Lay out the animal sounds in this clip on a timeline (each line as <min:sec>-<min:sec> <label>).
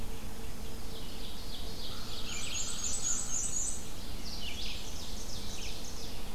0:00.0-0:01.0 Black-and-white Warbler (Mniotilta varia)
0:00.0-0:06.3 Red-eyed Vireo (Vireo olivaceus)
0:00.6-0:03.3 Ovenbird (Seiurus aurocapilla)
0:01.8-0:03.5 American Crow (Corvus brachyrhynchos)
0:02.0-0:04.0 Black-and-white Warbler (Mniotilta varia)
0:03.9-0:06.3 Ovenbird (Seiurus aurocapilla)